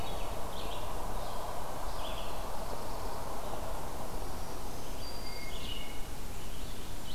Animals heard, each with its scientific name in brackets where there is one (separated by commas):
Hermit Thrush (Catharus guttatus), Black-throated Green Warbler (Setophaga virens), Black-throated Blue Warbler (Setophaga caerulescens), Red-eyed Vireo (Vireo olivaceus)